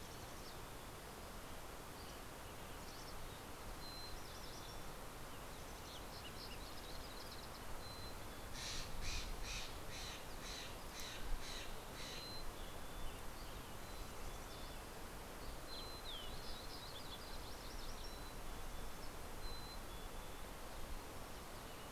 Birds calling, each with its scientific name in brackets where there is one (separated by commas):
Mountain Chickadee (Poecile gambeli), Lazuli Bunting (Passerina amoena), Steller's Jay (Cyanocitta stelleri), Dusky Flycatcher (Empidonax oberholseri), Fox Sparrow (Passerella iliaca), Mountain Quail (Oreortyx pictus)